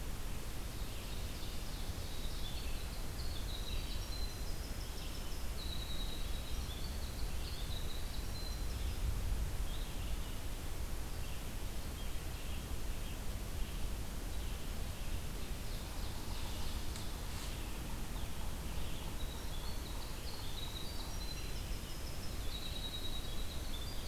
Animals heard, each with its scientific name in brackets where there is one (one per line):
Winter Wren (Troglodytes hiemalis)
Red-eyed Vireo (Vireo olivaceus)
Ovenbird (Seiurus aurocapilla)